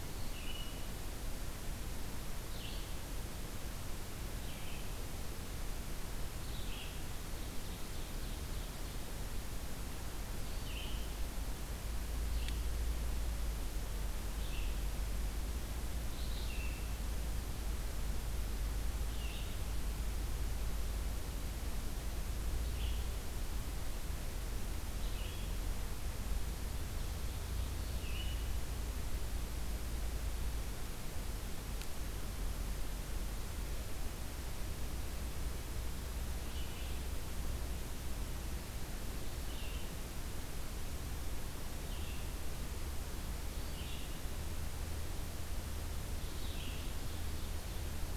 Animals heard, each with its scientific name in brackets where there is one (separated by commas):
Ovenbird (Seiurus aurocapilla), Red-eyed Vireo (Vireo olivaceus)